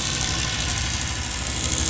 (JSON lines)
{"label": "anthrophony, boat engine", "recorder": "SoundTrap 500"}